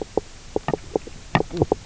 {"label": "biophony, knock croak", "recorder": "SoundTrap 300"}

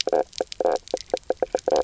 {"label": "biophony, knock croak", "recorder": "SoundTrap 300"}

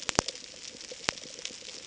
{"label": "ambient", "recorder": "HydroMoth"}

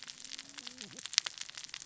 {"label": "biophony, cascading saw", "recorder": "SoundTrap 600 or HydroMoth"}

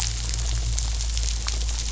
{"label": "biophony", "recorder": "SoundTrap 500"}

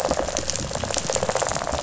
{"label": "biophony, rattle response", "recorder": "SoundTrap 500"}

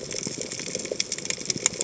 {"label": "biophony, chatter", "recorder": "HydroMoth"}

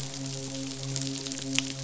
{"label": "biophony, midshipman", "recorder": "SoundTrap 500"}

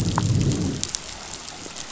{"label": "biophony, growl", "recorder": "SoundTrap 500"}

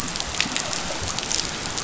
{"label": "biophony", "recorder": "SoundTrap 500"}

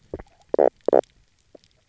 {"label": "biophony, knock croak", "recorder": "SoundTrap 300"}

